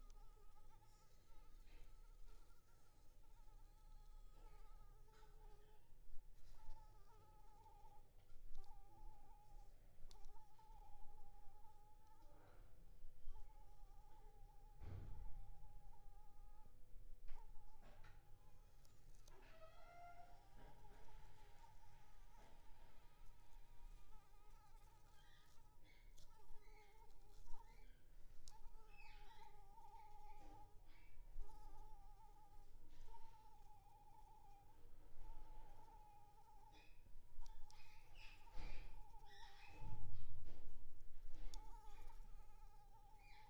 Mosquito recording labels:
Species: Anopheles arabiensis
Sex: female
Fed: unfed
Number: one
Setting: cup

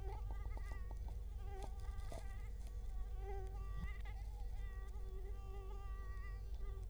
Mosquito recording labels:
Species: Culex quinquefasciatus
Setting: cup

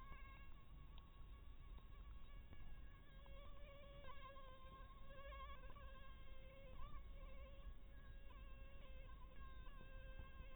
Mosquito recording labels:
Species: Anopheles minimus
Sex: female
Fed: blood-fed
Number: one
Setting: cup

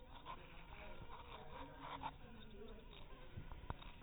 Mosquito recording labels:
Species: mosquito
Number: one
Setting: cup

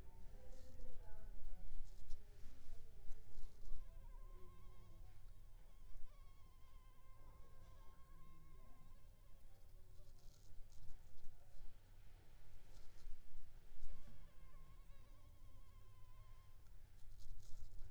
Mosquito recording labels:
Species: Culex pipiens complex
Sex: female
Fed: unfed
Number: one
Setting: cup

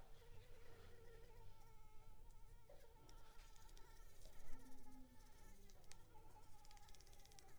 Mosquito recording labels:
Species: Anopheles arabiensis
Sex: female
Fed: unfed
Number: one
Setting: cup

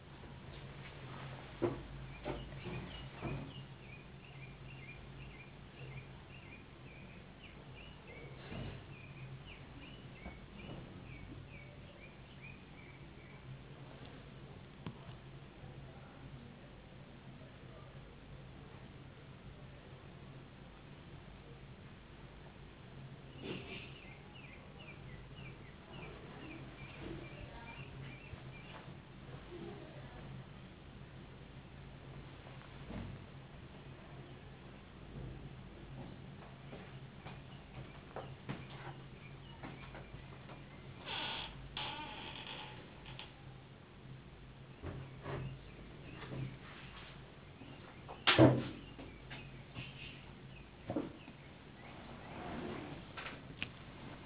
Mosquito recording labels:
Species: no mosquito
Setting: insect culture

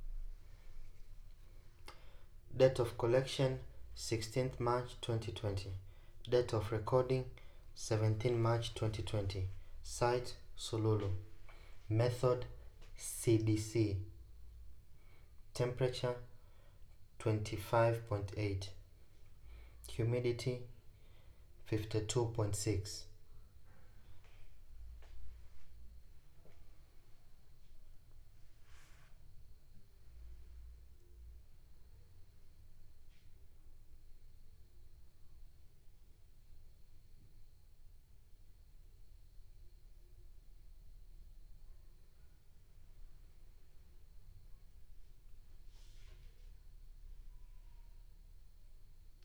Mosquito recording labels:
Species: no mosquito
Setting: cup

